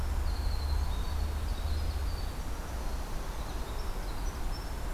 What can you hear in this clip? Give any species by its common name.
Winter Wren